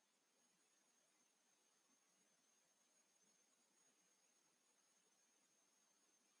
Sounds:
Throat clearing